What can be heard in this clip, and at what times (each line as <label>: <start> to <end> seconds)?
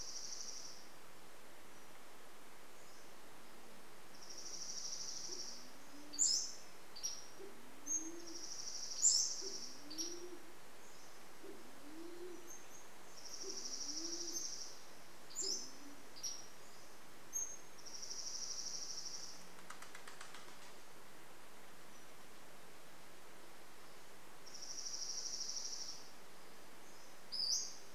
Dark-eyed Junco song: 0 to 2 seconds
Pacific-slope Flycatcher song: 2 to 4 seconds
Dark-eyed Junco song: 4 to 6 seconds
Band-tailed Pigeon song: 4 to 16 seconds
Pacific-slope Flycatcher song: 6 to 18 seconds
Dark-eyed Junco song: 8 to 10 seconds
Dark-eyed Junco song: 12 to 16 seconds
Dark-eyed Junco song: 18 to 20 seconds
bird wingbeats: 18 to 22 seconds
Dark-eyed Junco song: 24 to 26 seconds
Pacific-slope Flycatcher call: 26 to 28 seconds